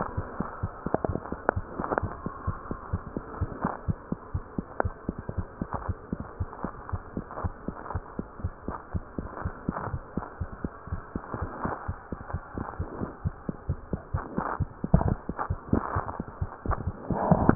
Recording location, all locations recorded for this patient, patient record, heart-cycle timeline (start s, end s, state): mitral valve (MV)
aortic valve (AV)+mitral valve (MV)
#Age: Child
#Sex: Female
#Height: 70.0 cm
#Weight: 8.1 kg
#Pregnancy status: False
#Murmur: Absent
#Murmur locations: nan
#Most audible location: nan
#Systolic murmur timing: nan
#Systolic murmur shape: nan
#Systolic murmur grading: nan
#Systolic murmur pitch: nan
#Systolic murmur quality: nan
#Diastolic murmur timing: nan
#Diastolic murmur shape: nan
#Diastolic murmur grading: nan
#Diastolic murmur pitch: nan
#Diastolic murmur quality: nan
#Outcome: Normal
#Campaign: 2015 screening campaign
0.00	2.76	unannotated
2.76	2.92	diastole
2.92	3.04	S1
3.04	3.16	systole
3.16	3.24	S2
3.24	3.40	diastole
3.40	3.52	S1
3.52	3.64	systole
3.64	3.72	S2
3.72	3.88	diastole
3.88	3.98	S1
3.98	4.10	systole
4.10	4.18	S2
4.18	4.34	diastole
4.34	4.44	S1
4.44	4.57	systole
4.57	4.66	S2
4.66	4.84	diastole
4.84	4.94	S1
4.94	5.07	systole
5.07	5.16	S2
5.16	5.38	diastole
5.38	5.46	S1
5.46	5.60	systole
5.60	5.70	S2
5.70	5.87	diastole
5.87	5.95	S1
5.95	6.11	systole
6.11	6.18	S2
6.18	6.38	diastole
6.38	6.48	S1
6.48	6.62	systole
6.62	6.72	S2
6.72	6.92	diastole
6.92	7.02	S1
7.02	7.15	systole
7.15	7.24	S2
7.24	7.42	diastole
7.42	7.54	S1
7.54	7.65	systole
7.65	7.76	S2
7.76	7.91	diastole
7.91	8.04	S1
8.04	8.16	systole
8.16	8.28	S2
8.28	8.41	diastole
8.41	8.52	S1
8.52	8.65	systole
8.65	8.76	S2
8.76	8.92	diastole
8.92	9.04	S1
9.04	9.16	systole
9.16	9.28	S2
9.28	9.44	diastole
9.44	9.52	S1
9.52	9.66	systole
9.66	9.76	S2
9.76	9.92	diastole
9.92	10.02	S1
10.02	10.15	systole
10.15	10.24	S2
10.24	10.38	diastole
10.38	10.50	S1
10.50	10.62	systole
10.62	10.72	S2
10.72	10.89	diastole
10.89	11.02	S1
11.02	11.13	systole
11.13	11.24	S2
11.24	11.40	diastole
11.40	11.50	S1
11.50	11.62	systole
11.62	11.71	S2
11.71	11.87	diastole
11.87	11.95	S1
11.95	12.10	systole
12.10	12.20	S2
12.20	12.32	diastole
12.32	12.44	S1
12.44	12.56	systole
12.56	12.66	S2
12.66	12.78	diastole
12.78	12.88	S1
12.88	13.00	systole
13.00	13.10	S2
13.10	13.22	diastole
13.22	13.33	S1
13.33	13.47	systole
13.47	13.56	S2
13.56	13.68	diastole
13.68	13.80	S1
13.80	13.92	systole
13.92	14.02	S2
14.02	14.13	diastole
14.13	17.55	unannotated